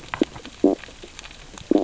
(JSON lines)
{"label": "biophony, stridulation", "recorder": "SoundTrap 600 or HydroMoth"}